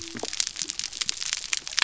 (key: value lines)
label: biophony
recorder: SoundTrap 300